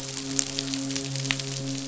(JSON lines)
{"label": "biophony, midshipman", "recorder": "SoundTrap 500"}